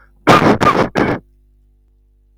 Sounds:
Cough